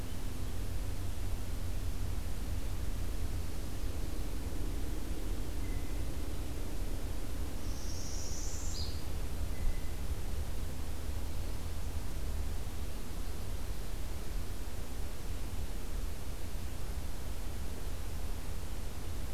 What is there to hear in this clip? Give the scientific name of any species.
Cyanocitta cristata, Setophaga americana